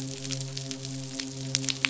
{"label": "biophony, midshipman", "recorder": "SoundTrap 500"}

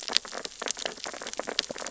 {"label": "biophony, sea urchins (Echinidae)", "recorder": "SoundTrap 600 or HydroMoth"}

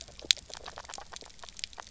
{"label": "biophony, grazing", "recorder": "SoundTrap 300"}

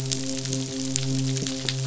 {"label": "biophony, midshipman", "recorder": "SoundTrap 500"}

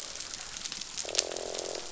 {"label": "biophony, croak", "recorder": "SoundTrap 500"}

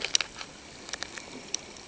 {"label": "ambient", "recorder": "HydroMoth"}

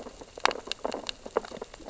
{"label": "biophony, sea urchins (Echinidae)", "recorder": "SoundTrap 600 or HydroMoth"}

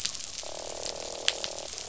{"label": "biophony, croak", "recorder": "SoundTrap 500"}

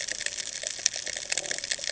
{"label": "ambient", "recorder": "HydroMoth"}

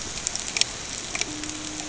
{"label": "ambient", "recorder": "HydroMoth"}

